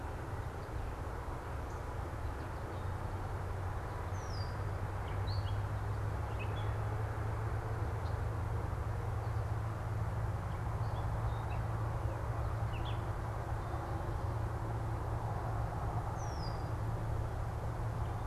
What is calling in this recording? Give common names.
Red-winged Blackbird, Gray Catbird